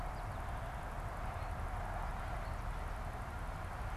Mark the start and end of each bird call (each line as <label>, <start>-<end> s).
American Goldfinch (Spinus tristis), 0.0-4.0 s